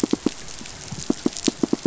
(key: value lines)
label: biophony, pulse
recorder: SoundTrap 500